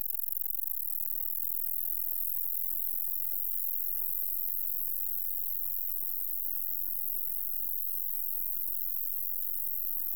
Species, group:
Polysarcus denticauda
Orthoptera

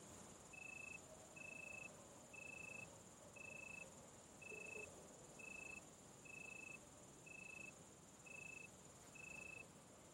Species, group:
Oecanthus pellucens
Orthoptera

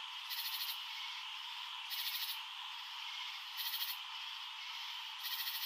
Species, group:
Pterophylla camellifolia
Orthoptera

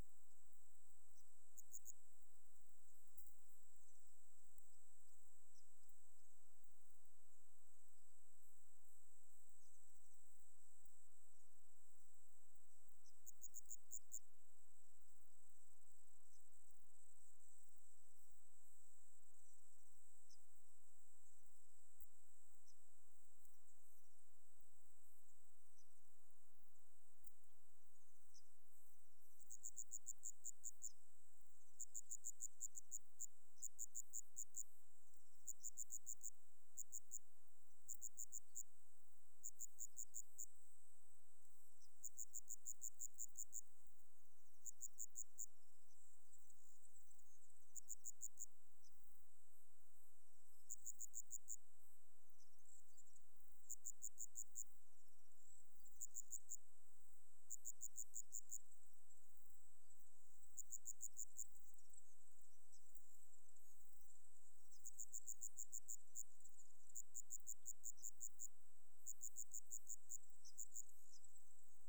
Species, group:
Eumodicogryllus theryi
Orthoptera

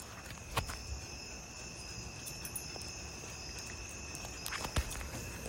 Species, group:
Hapithus saltator
Orthoptera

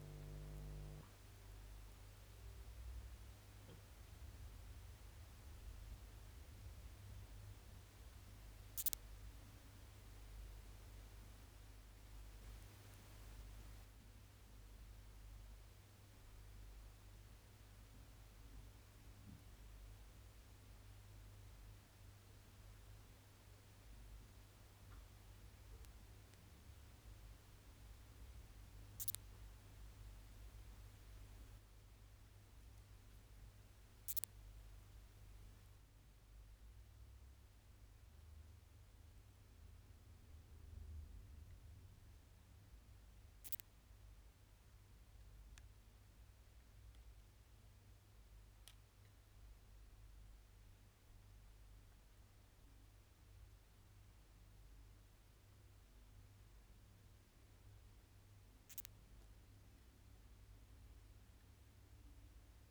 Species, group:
Leptophyes calabra
Orthoptera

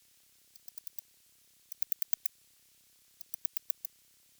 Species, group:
Metaplastes ornatus
Orthoptera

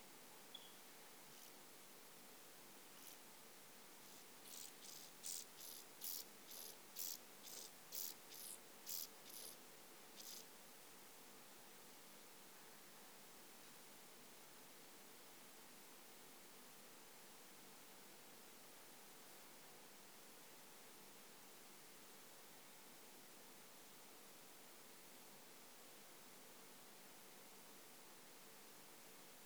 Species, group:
Chorthippus brunneus
Orthoptera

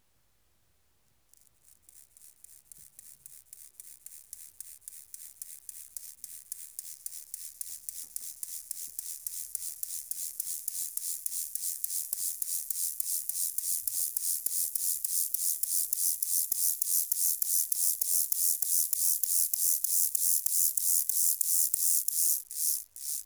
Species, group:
Chorthippus mollis
Orthoptera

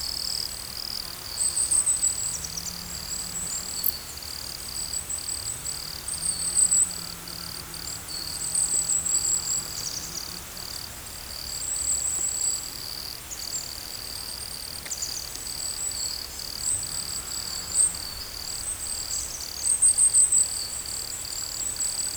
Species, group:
Nemobius sylvestris
Orthoptera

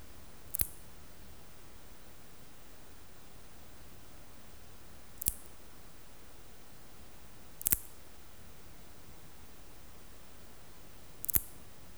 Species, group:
Parasteropleurus perezii
Orthoptera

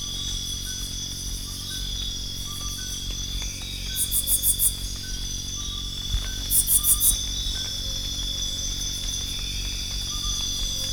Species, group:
Phyllomimus inversus
Orthoptera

